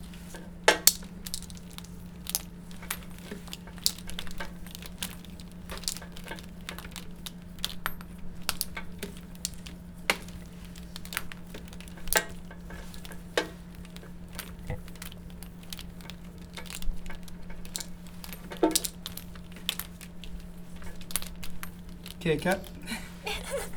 Are people heard?
yes